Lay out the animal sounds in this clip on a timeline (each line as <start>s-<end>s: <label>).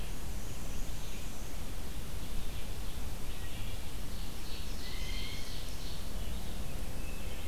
0.0s-2.1s: Black-and-white Warbler (Mniotilta varia)
0.0s-7.5s: Red-eyed Vireo (Vireo olivaceus)
2.0s-3.2s: Ovenbird (Seiurus aurocapilla)
3.3s-4.0s: Wood Thrush (Hylocichla mustelina)
3.8s-6.3s: Ovenbird (Seiurus aurocapilla)
4.8s-5.6s: Blue Jay (Cyanocitta cristata)
6.9s-7.5s: Wood Thrush (Hylocichla mustelina)